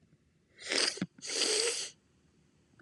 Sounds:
Sniff